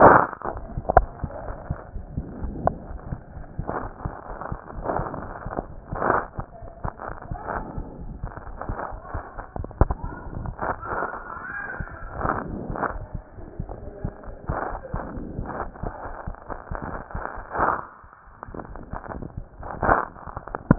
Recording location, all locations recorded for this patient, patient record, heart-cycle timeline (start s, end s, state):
aortic valve (AV)
aortic valve (AV)+pulmonary valve (PV)+tricuspid valve (TV)+mitral valve (MV)
#Age: Child
#Sex: Male
#Height: 130.0 cm
#Weight: 27.3 kg
#Pregnancy status: False
#Murmur: Absent
#Murmur locations: nan
#Most audible location: nan
#Systolic murmur timing: nan
#Systolic murmur shape: nan
#Systolic murmur grading: nan
#Systolic murmur pitch: nan
#Systolic murmur quality: nan
#Diastolic murmur timing: nan
#Diastolic murmur shape: nan
#Diastolic murmur grading: nan
#Diastolic murmur pitch: nan
#Diastolic murmur quality: nan
#Outcome: Normal
#Campaign: 2015 screening campaign
0.00	1.26	unannotated
1.26	1.47	diastole
1.47	1.53	S1
1.53	1.69	systole
1.69	1.75	S2
1.75	1.94	diastole
1.94	2.01	S1
2.01	2.15	systole
2.15	2.22	S2
2.22	2.41	diastole
2.42	2.50	S1
2.50	2.63	systole
2.63	2.71	S2
2.71	2.90	diastole
2.90	2.98	S1
2.98	3.12	systole
3.12	3.17	S2
3.17	3.36	diastole
3.36	3.40	S1
3.40	3.42	systole
3.42	3.58	systole
3.58	3.63	S2
3.63	3.82	diastole
3.82	3.88	S1
3.88	4.04	systole
4.04	4.08	S2
4.08	4.29	diastole
4.29	4.34	S1
4.34	4.50	systole
4.50	4.56	S2
4.56	4.76	diastole
4.76	4.82	S1
4.82	4.98	systole
4.98	5.02	S2
5.02	5.23	diastole
5.23	5.29	S1
5.29	5.45	systole
5.45	5.50	S2
5.50	5.69	diastole
5.69	5.75	S1
5.75	5.91	systole
5.91	5.99	S2
5.99	6.04	diastole
6.04	6.20	S1
6.20	20.78	unannotated